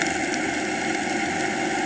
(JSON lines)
{"label": "anthrophony, boat engine", "recorder": "HydroMoth"}